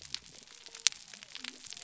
{"label": "biophony", "recorder": "SoundTrap 300"}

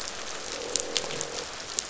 {"label": "biophony, croak", "recorder": "SoundTrap 500"}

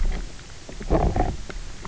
{"label": "biophony, knock croak", "recorder": "SoundTrap 300"}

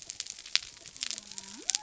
{"label": "biophony", "recorder": "SoundTrap 300"}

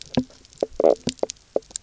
{"label": "biophony, knock croak", "recorder": "SoundTrap 300"}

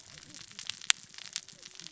{"label": "biophony, cascading saw", "recorder": "SoundTrap 600 or HydroMoth"}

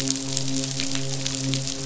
{"label": "biophony, midshipman", "recorder": "SoundTrap 500"}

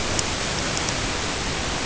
{"label": "ambient", "recorder": "HydroMoth"}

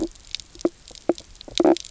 {"label": "biophony, stridulation", "recorder": "SoundTrap 300"}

